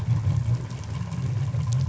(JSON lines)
{"label": "anthrophony, boat engine", "recorder": "SoundTrap 500"}